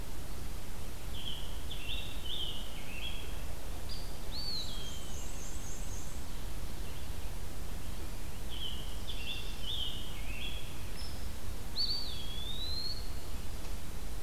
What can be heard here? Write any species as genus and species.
Piranga olivacea, Dryobates villosus, Mniotilta varia, Contopus virens